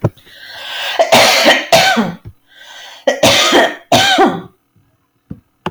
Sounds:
Cough